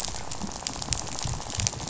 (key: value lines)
label: biophony, rattle
recorder: SoundTrap 500